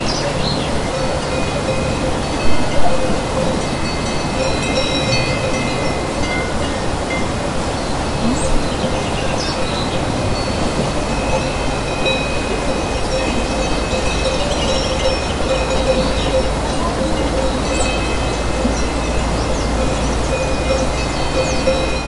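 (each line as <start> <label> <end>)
0.0 Birds chirping melodically outdoors. 22.1
2.5 A bell rings melodically in the distance outdoors. 22.1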